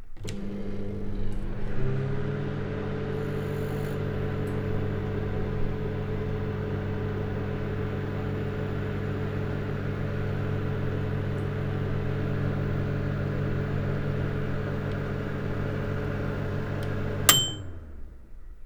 Is it a radial arm saw?
no